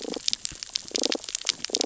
{"label": "biophony, damselfish", "recorder": "SoundTrap 600 or HydroMoth"}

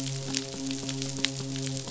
{"label": "biophony, midshipman", "recorder": "SoundTrap 500"}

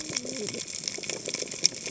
{"label": "biophony, cascading saw", "recorder": "HydroMoth"}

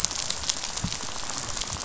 {"label": "biophony, rattle", "recorder": "SoundTrap 500"}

